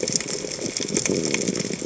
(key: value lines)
label: biophony
recorder: HydroMoth